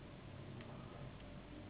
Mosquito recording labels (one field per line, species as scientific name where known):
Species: Anopheles gambiae s.s.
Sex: female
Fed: unfed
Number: one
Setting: insect culture